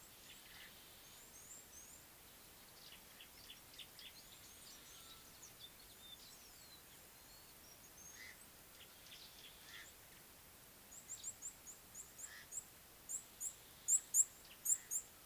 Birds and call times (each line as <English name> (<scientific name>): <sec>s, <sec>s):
Red-cheeked Cordonbleu (Uraeginthus bengalus): 1.5s, 13.9s